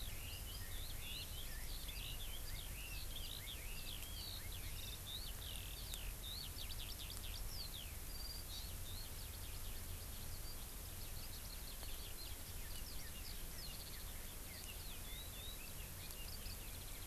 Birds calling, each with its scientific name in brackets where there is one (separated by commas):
Hawaii Amakihi (Chlorodrepanis virens), Red-billed Leiothrix (Leiothrix lutea), Eurasian Skylark (Alauda arvensis)